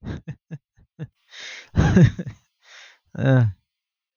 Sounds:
Laughter